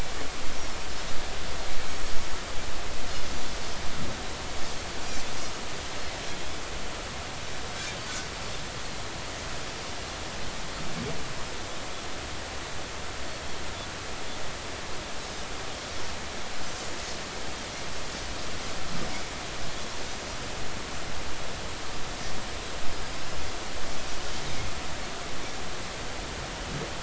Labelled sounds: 7.8	8.0	Pacific white-sided dolphin, 6.2 to 6.4 kHz

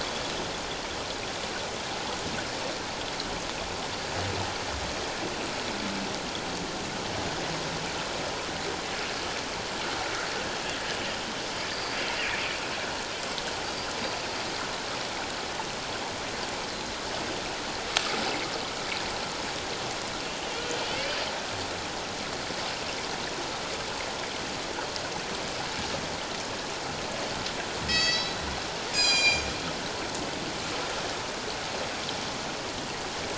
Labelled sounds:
11.7	12.0	killer whale, northern resident, G clan, 4.5 to 4.8 kHz
20.9	21.2	killer whale, northern resident, G clan, call N24ii, 2.1 to 2.6 kHz
27.9	28.4	killer whale, northern resident, G clan, call N24ii, 1.8 to 7.3 kHz
28.9	29.5	killer whale, northern resident, G clan, call N24ii, 2.3 to 7.6 kHz

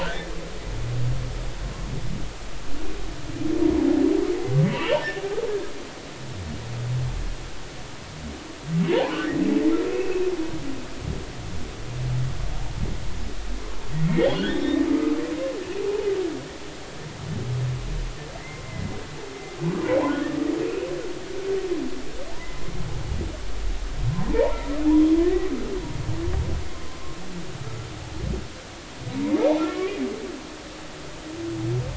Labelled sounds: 0.0	0.3	humpback whale, 1.3 to 1.9 kHz
4.7	5.0	humpback whale, 2.5 to 3.0 kHz
8.9	9.2	humpback whale, 0.80 to 1.1 kHz
9.9	10.3	humpback whale, 2.4 to 2.7 kHz
14.0	15.2	humpback whale, 1.2 to 3.7 kHz
18.6	18.9	humpback whale, 2.0 to 2.1 kHz
20.7	20.9	humpback whale, 2.4 to 2.8 kHz
24.1	25.5	humpback whale, 0.83 to 2.0 kHz
29.1	29.8	humpback whale, 0.90 to 1.5 kHz

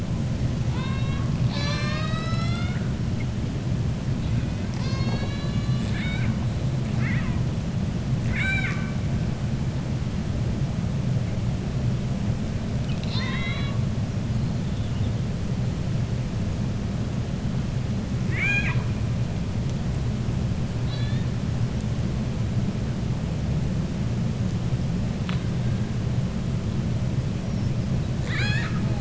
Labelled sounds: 0.6	1.3	killer whale, 0.87 to 4.3 kHz
8.2	8.9	killer whale, 0.82 to 7.8 kHz
12.8	13.8	killer whale, 1.0 to 5.7 kHz
18.2	18.9	killer whale, 0.86 to 7.3 kHz

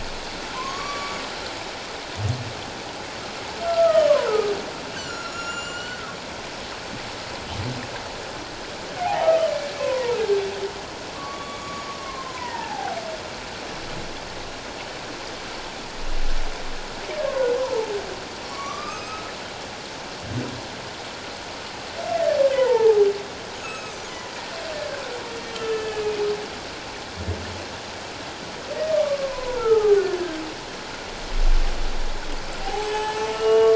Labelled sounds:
0.5	1.2	humpback whale, 0.91 to 6.9 kHz
3.7	4.5	humpback whale, 1.2 to 1.6 kHz
4.9	6.0	humpback whale, 1.3 to 7.5 kHz
9.0	10.2	humpback whale, 0.78 to 1.3 kHz
11.1	13.0	humpback whale, 0.78 to 6.8 kHz
17.2	17.6	humpback whale, 0.94 to 1.7 kHz
18.4	19.3	humpback whale, 1.1 to 7.8 kHz
22.5	23.0	humpback whale, 0.78 to 2.1 kHz
23.6	24.0	humpback whale, 1.2 to 6.8 kHz
25.5	26.3	humpback whale, 1.2 to 3.2 kHz
28.9	30.4	humpback whale, 0.78 to 1.9 kHz
32.6	33.7	humpback whale, 0.78 to 7.8 kHz

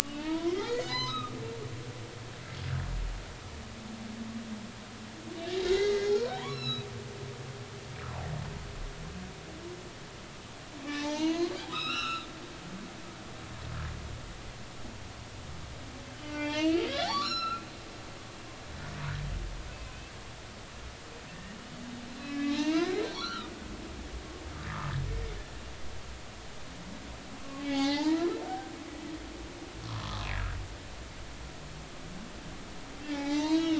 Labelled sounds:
0.1	1.4	humpback whale, 0.86 to 6.2 kHz
5.7	6.9	humpback whale, 0.90 to 5.5 kHz
10.9	12.3	humpback whale, 0.83 to 6.3 kHz
16.2	17.6	humpback whale, 0.80 to 7.1 kHz
19.7	20.1	humpback whale, 2.5 to 2.7 kHz
21.3	21.6	humpback whale, 1.8 to 1.9 kHz
22.2	23.5	humpback whale, 0.83 to 6.0 kHz
27.6	28.8	humpback whale, 0.80 to 3.8 kHz
29.9	30.6	humpback whale, 0.93 to 1.8 kHz
33.1	33.7	humpback whale, 0.80 to 6.2 kHz

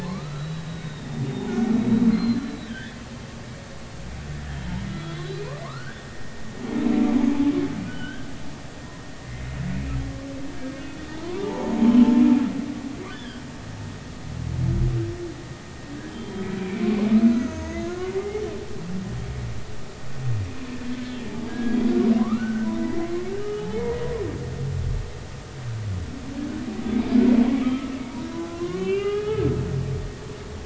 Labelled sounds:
0.0	1.1	humpback whale, 0.83 to 4.1 kHz
2.1	3.0	humpback whale, 1.5 to 4.3 kHz
4.5	6.0	humpback whale, 0.96 to 4.1 kHz
7.9	8.3	humpback whale, 1.4 to 3.3 kHz
9.2	10.0	humpback whale, 1.9 to 2.6 kHz
11.2	12.1	humpback whale, 0.83 to 1.2 kHz
13.1	13.4	humpback whale, 1.5 to 3.6 kHz
16.1	18.4	humpback whale, 0.90 to 6.7 kHz
21.5	23.0	humpback whale, 0.96 to 2.0 kHz
23.4	24.0	humpback whale, 0.80 to 1.3 kHz
27.6	30.1	humpback whale, 0.80 to 3.4 kHz

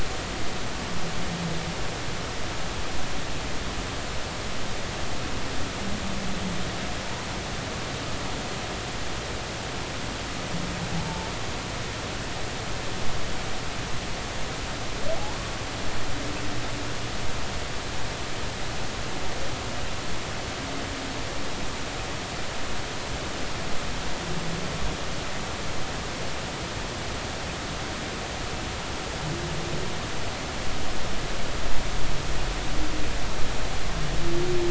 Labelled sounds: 11.0	11.3	humpback whale, 0.83 to 0.93 kHz

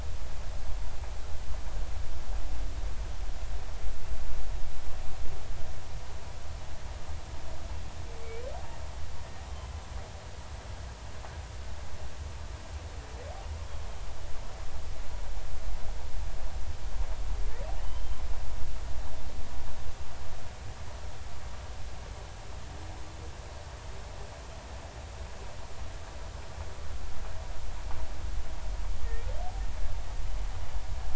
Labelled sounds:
17.8	18.2	humpback whale, 3.0 to 3.2 kHz

